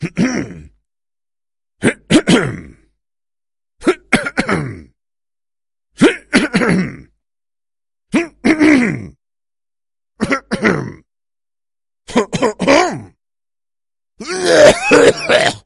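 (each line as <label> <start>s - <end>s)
A person clears their throat. 0.0s - 0.7s
A person clears their throat. 1.8s - 3.0s
A person coughs. 3.7s - 4.9s
A person clears their throat. 5.9s - 7.2s
A person clears their throat. 8.1s - 9.2s
A person clears their throat. 10.2s - 11.1s
A person clears their throat. 12.1s - 13.2s
A person coughs. 14.2s - 15.7s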